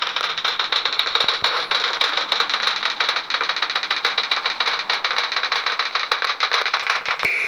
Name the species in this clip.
Cyrtaspis scutata